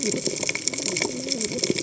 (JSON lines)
{"label": "biophony, cascading saw", "recorder": "HydroMoth"}